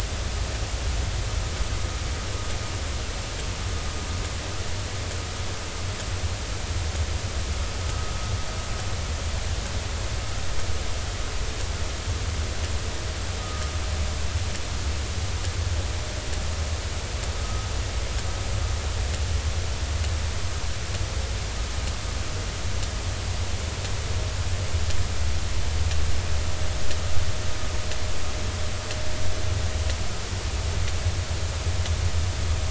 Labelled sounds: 13.4	13.7	vessel noise, 1.2 to 1.3 kHz
17.4	17.7	vessel noise, 1.2 to 1.3 kHz

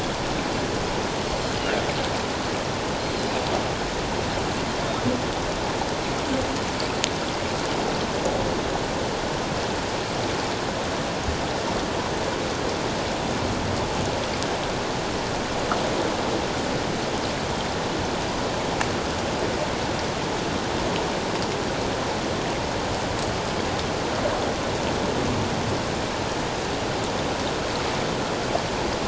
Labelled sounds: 3.0	3.3	Pacific white-sided dolphin, 4.0 to 4.3 kHz

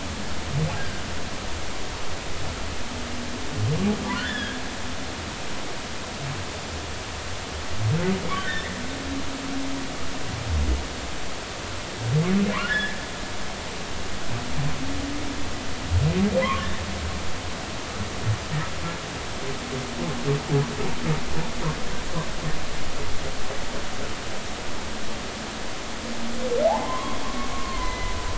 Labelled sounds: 0.8	1.0	humpback whale, 1.5 to 1.7 kHz
4.1	4.6	humpback whale, 1.3 to 3.6 kHz
8.4	8.7	humpback whale, 1.4 to 2.0 kHz
12.5	13.0	humpback whale, 0.96 to 2.0 kHz
16.4	16.7	humpback whale, 0.93 to 1.2 kHz
26.6	28.1	humpback whale, 0.80 to 4.1 kHz

